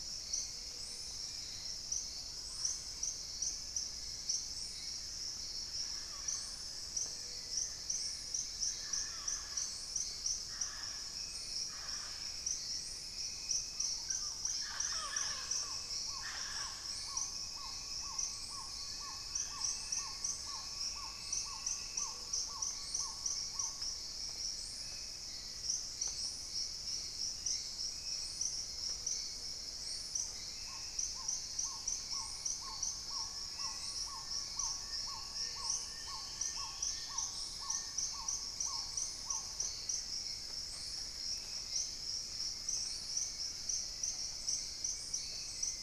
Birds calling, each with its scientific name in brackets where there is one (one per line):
Plain-winged Antshrike (Thamnophilus schistaceus)
Black-tailed Trogon (Trogon melanurus)
Black-faced Antthrush (Formicarius analis)
Spot-winged Antshrike (Pygiptila stellaris)
Dusky-throated Antshrike (Thamnomanes ardesiacus)
Gray-fronted Dove (Leptotila rufaxilla)
Mealy Parrot (Amazona farinosa)
Hauxwell's Thrush (Turdus hauxwelli)
Long-billed Woodcreeper (Nasica longirostris)